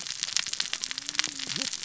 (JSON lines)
{"label": "biophony, cascading saw", "recorder": "SoundTrap 600 or HydroMoth"}